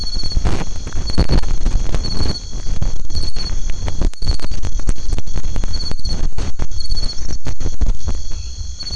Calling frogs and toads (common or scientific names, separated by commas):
white-edged tree frog